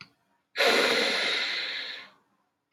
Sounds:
Sniff